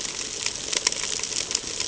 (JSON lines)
{"label": "ambient", "recorder": "HydroMoth"}